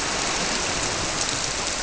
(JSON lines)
{"label": "biophony", "recorder": "SoundTrap 300"}